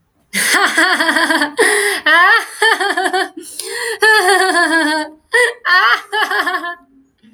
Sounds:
Laughter